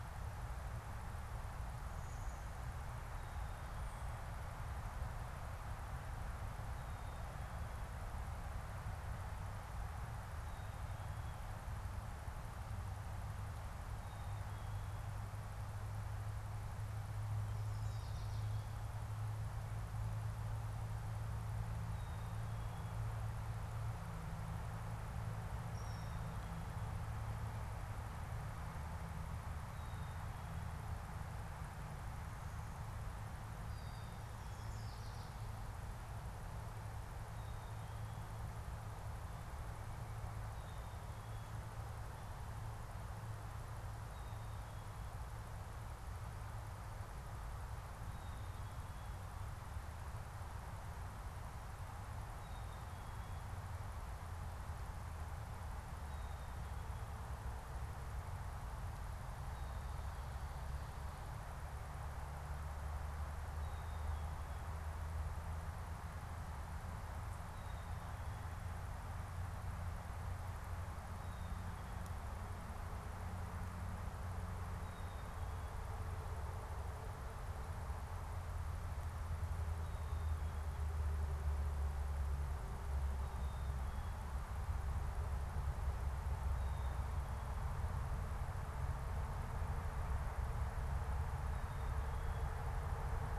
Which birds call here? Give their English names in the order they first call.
Blue-winged Warbler, Black-capped Chickadee, unidentified bird, Brown-headed Cowbird